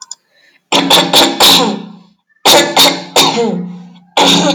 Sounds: Throat clearing